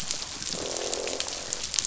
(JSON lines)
{"label": "biophony, croak", "recorder": "SoundTrap 500"}